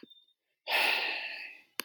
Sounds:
Sigh